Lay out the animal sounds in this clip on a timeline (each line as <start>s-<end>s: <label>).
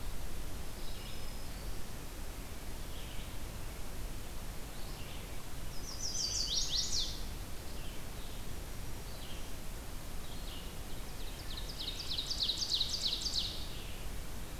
0.0s-14.6s: Red-eyed Vireo (Vireo olivaceus)
0.7s-1.9s: Black-throated Green Warbler (Setophaga virens)
5.6s-7.3s: Chestnut-sided Warbler (Setophaga pensylvanica)
10.9s-13.8s: Ovenbird (Seiurus aurocapilla)